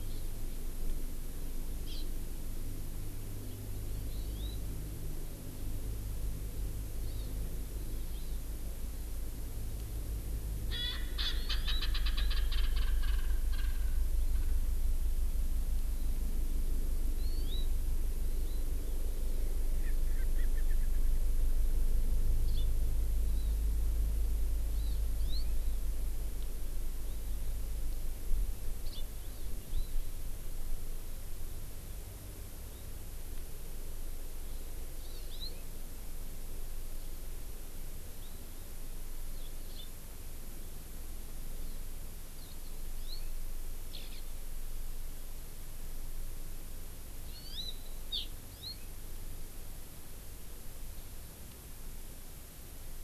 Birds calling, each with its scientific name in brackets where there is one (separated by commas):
Eurasian Skylark (Alauda arvensis), Erckel's Francolin (Pternistis erckelii), Hawaii Amakihi (Chlorodrepanis virens)